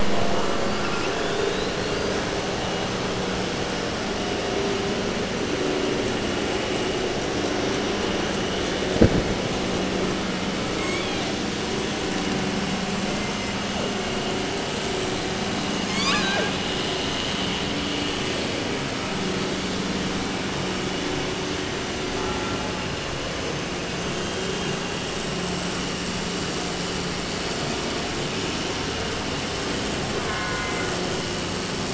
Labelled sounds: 0.5	2.2	killer whale, 2.3 to 6.3 kHz
10.7	11.5	killer whale, southern resident, 0.30 to 8.0 kHz
13.0	13.6	killer whale, 1.7 to 7.6 kHz
15.8	16.6	killer whale, 0.26 to 8.0 kHz
30.1	31.0	killer whale, southern resident, J pod, call S04, 0.30 to 2.4 kHz

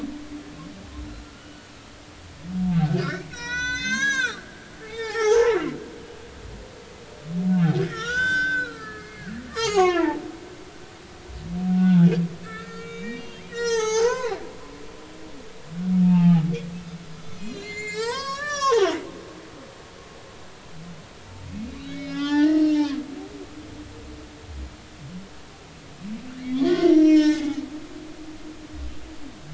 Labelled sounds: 1.3	1.7	humpback whale, 1.4 to 1.5 kHz
2.7	5.6	humpback whale, 0.80 to 7.8 kHz
7.5	9.3	humpback whale, 1.2 to 7.7 kHz
9.5	11.0	humpback whale, 0.80 to 6.8 kHz
11.8	12.1	humpback whale, 1.3 to 3.6 kHz
12.4	14.4	humpback whale, 0.80 to 8.0 kHz
16.0	16.5	humpback whale, 0.80 to 2.9 kHz
17.2	18.9	humpback whale, 0.80 to 8.0 kHz
21.7	22.8	humpback whale, 0.80 to 5.5 kHz
26.4	27.6	humpback whale, 0.80 to 6.9 kHz

